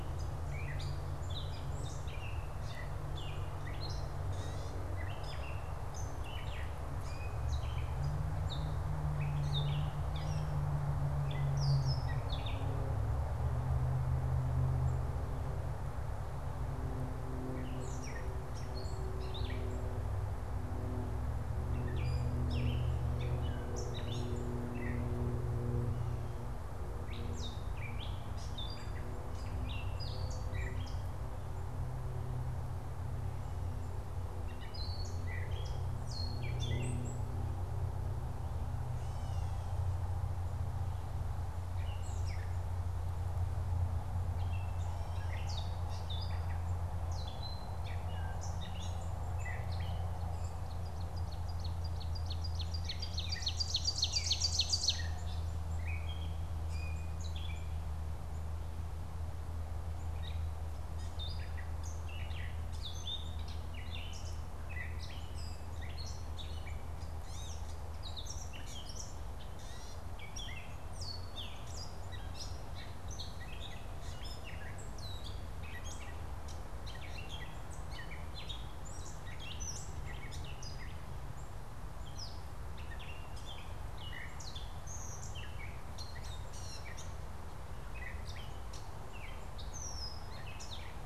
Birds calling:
Gray Catbird (Dumetella carolinensis)
Ovenbird (Seiurus aurocapilla)

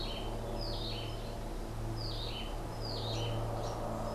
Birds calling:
Cabanis's Wren (Cantorchilus modestus)

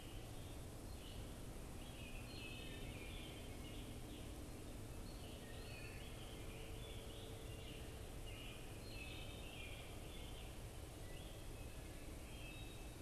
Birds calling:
Red-eyed Vireo (Vireo olivaceus)
Scarlet Tanager (Piranga olivacea)
Wood Thrush (Hylocichla mustelina)
American Robin (Turdus migratorius)

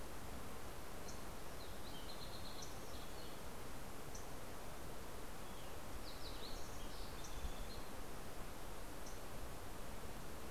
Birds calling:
MacGillivray's Warbler (Geothlypis tolmiei)
Fox Sparrow (Passerella iliaca)

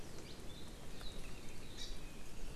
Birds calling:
Hawaii Amakihi (Chlorodrepanis virens)

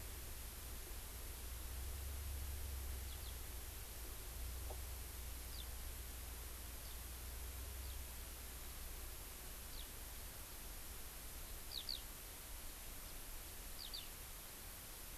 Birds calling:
Eurasian Skylark (Alauda arvensis)

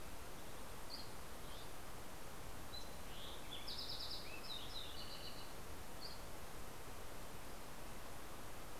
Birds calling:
Dusky Flycatcher (Empidonax oberholseri)
Fox Sparrow (Passerella iliaca)

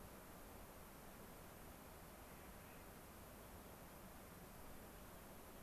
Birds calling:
Clark's Nutcracker (Nucifraga columbiana)

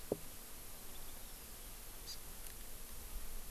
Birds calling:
Hawaii Amakihi (Chlorodrepanis virens)

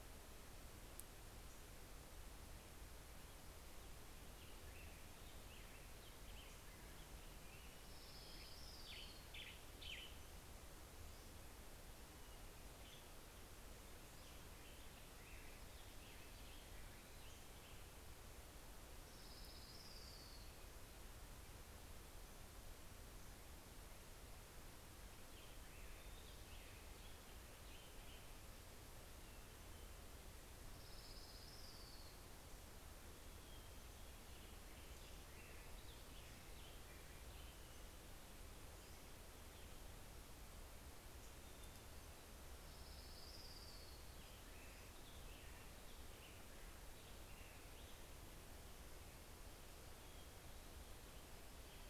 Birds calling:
American Robin (Turdus migratorius)
Western Tanager (Piranga ludoviciana)
Orange-crowned Warbler (Leiothlypis celata)

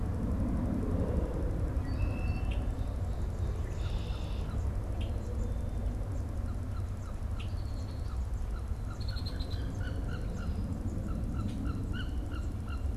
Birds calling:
Red-winged Blackbird (Agelaius phoeniceus)
Wood Duck (Aix sponsa)

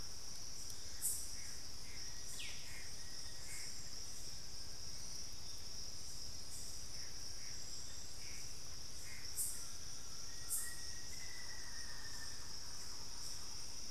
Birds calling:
Plain-winged Antshrike (Thamnophilus schistaceus)
unidentified bird
Gray Antbird (Cercomacra cinerascens)
Black-faced Antthrush (Formicarius analis)
Thrush-like Wren (Campylorhynchus turdinus)
Collared Trogon (Trogon collaris)

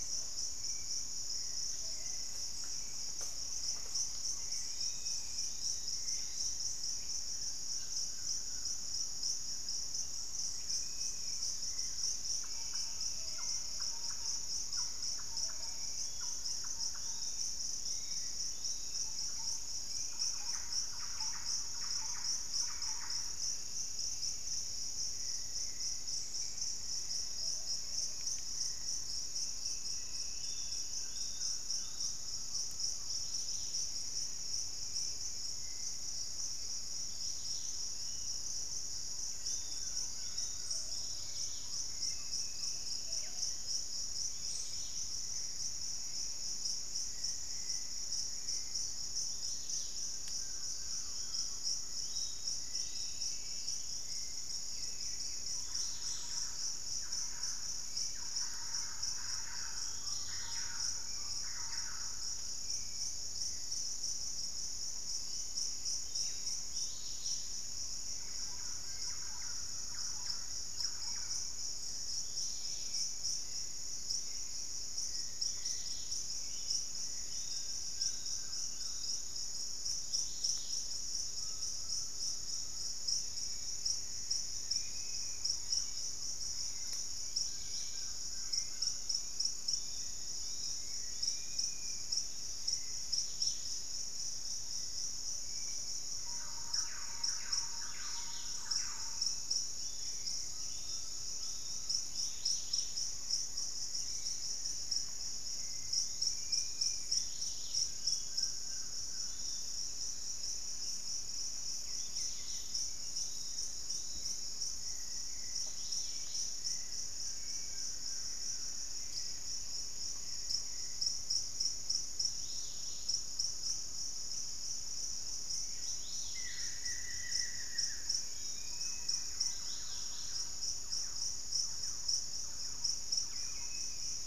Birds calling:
Hauxwell's Thrush (Turdus hauxwelli)
Dusky-capped Flycatcher (Myiarchus tuberculifer)
Pygmy Antwren (Myrmotherula brachyura)
unidentified bird
Dusky-capped Greenlet (Pachysylvia hypoxantha)
Collared Trogon (Trogon collaris)
Golden-crowned Spadebill (Platyrinchus coronatus)
Black-capped Becard (Pachyramphus marginatus)
Gray Antwren (Myrmotherula menetriesii)
Yellow-margined Flycatcher (Tolmomyias assimilis)
Undulated Tinamou (Crypturellus undulatus)
Thrush-like Wren (Campylorhynchus turdinus)
Black-faced Antthrush (Formicarius analis)
Plumbeous Pigeon (Patagioenas plumbea)

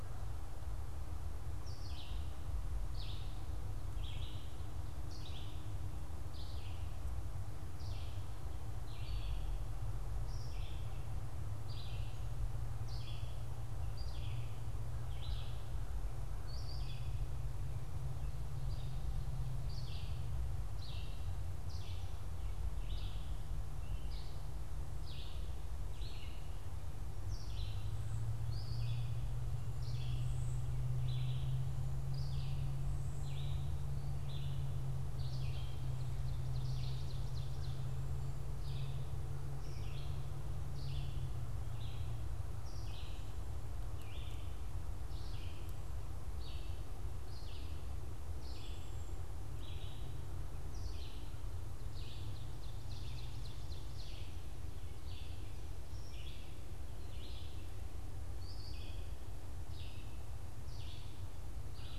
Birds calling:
Red-eyed Vireo (Vireo olivaceus)
Ovenbird (Seiurus aurocapilla)
unidentified bird

